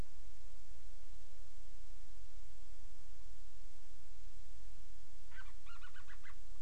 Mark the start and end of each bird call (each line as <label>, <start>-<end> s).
Band-rumped Storm-Petrel (Hydrobates castro), 5.2-6.4 s